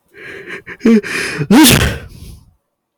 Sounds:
Sneeze